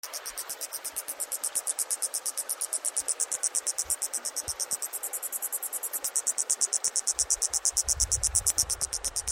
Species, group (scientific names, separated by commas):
Atrapsalta collina, Cicadidae